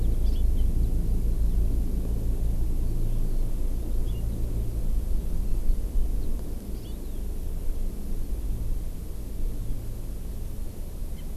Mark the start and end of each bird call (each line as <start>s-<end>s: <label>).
0.2s-0.4s: Hawaii Amakihi (Chlorodrepanis virens)